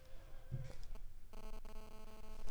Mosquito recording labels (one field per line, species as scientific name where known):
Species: Culex pipiens complex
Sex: female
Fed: unfed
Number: one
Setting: cup